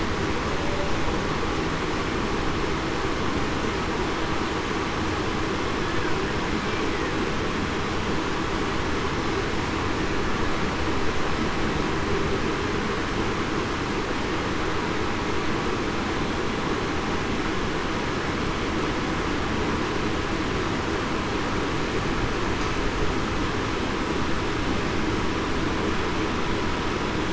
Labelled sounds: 0.3	0.8	humpback whale, 0.54 to 0.61 kHz

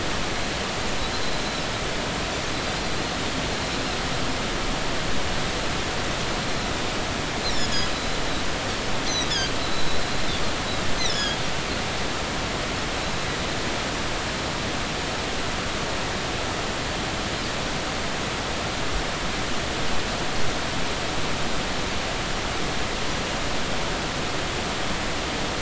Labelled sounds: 9.1	10.0	Pacific white-sided dolphin, 3.7 to 4.2 kHz
11.0	11.4	Pacific white-sided dolphin, 1.6 to 6.3 kHz

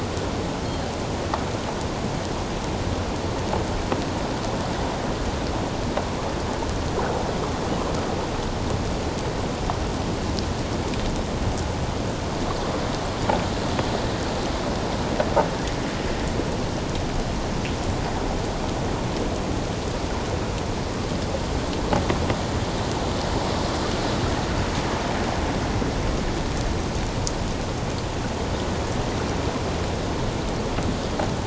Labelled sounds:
0.6	0.9	Pacific white-sided dolphin, 3.0 to 3.3 kHz

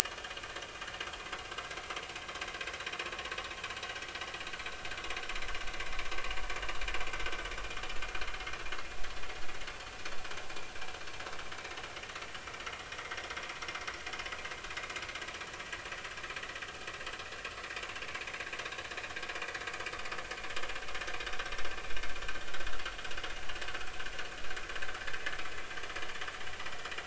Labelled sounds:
0.0	0.4	vessel noise, 2.8 to 3.4 kHz
18.6	18.8	vessel noise, 3.6 to 3.8 kHz

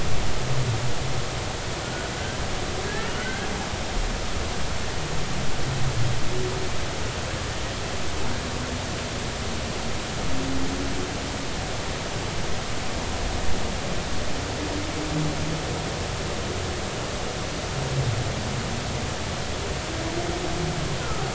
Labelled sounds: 2.9	3.5	humpback whale, 1.4 to 1.9 kHz
21.0	21.3	humpback whale, 1.2 to 1.5 kHz

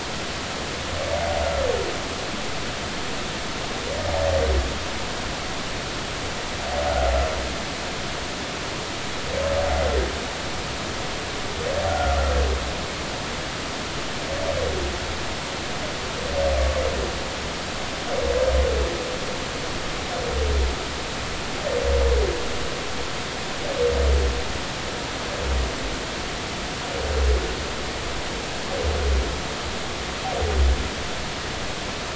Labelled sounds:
11.9	12.2	humpback whale, 1.3 to 1.5 kHz

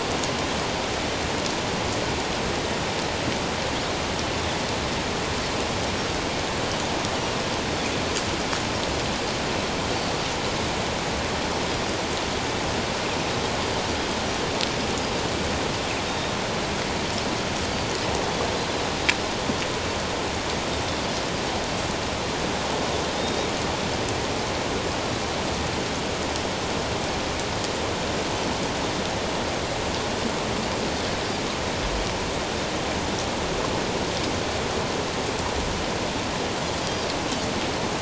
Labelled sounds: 16.1	16.3	Pacific white-sided dolphin, 3.7 to 3.8 kHz
23.2	23.5	Pacific white-sided dolphin, 3.6 to 3.8 kHz

